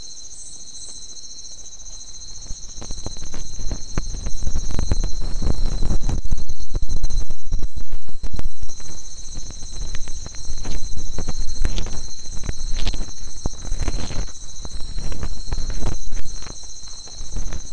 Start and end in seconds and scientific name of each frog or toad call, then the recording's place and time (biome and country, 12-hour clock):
none
Atlantic Forest, Brazil, 11:30pm